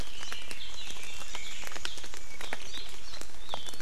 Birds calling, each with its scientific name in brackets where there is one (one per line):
Red-billed Leiothrix (Leiothrix lutea)